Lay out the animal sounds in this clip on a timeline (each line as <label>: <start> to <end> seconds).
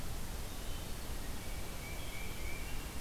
Tufted Titmouse (Baeolophus bicolor): 1.6 to 2.9 seconds